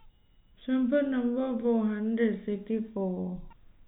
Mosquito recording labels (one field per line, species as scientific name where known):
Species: no mosquito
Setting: cup